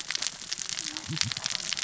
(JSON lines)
{"label": "biophony, cascading saw", "recorder": "SoundTrap 600 or HydroMoth"}